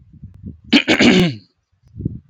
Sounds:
Throat clearing